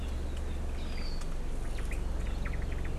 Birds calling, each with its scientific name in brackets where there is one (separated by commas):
Omao (Myadestes obscurus)